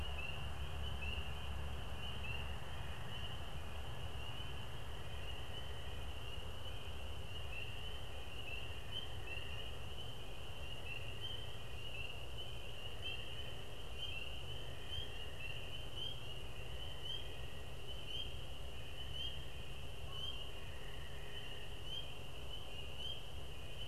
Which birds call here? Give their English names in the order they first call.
Canada Goose